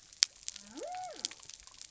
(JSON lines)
{"label": "biophony", "recorder": "SoundTrap 300"}